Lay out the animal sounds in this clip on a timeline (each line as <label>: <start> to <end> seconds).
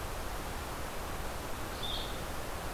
Blue-headed Vireo (Vireo solitarius): 0.0 to 2.7 seconds